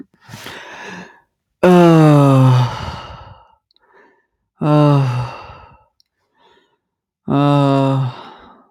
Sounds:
Sigh